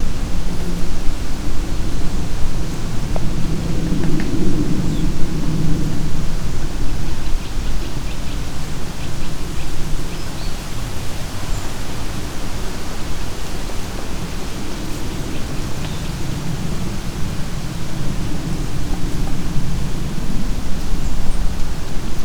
What are the birds doing?
chirping